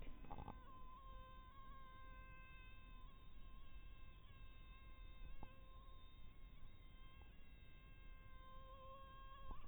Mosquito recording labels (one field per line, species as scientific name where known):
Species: mosquito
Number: one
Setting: cup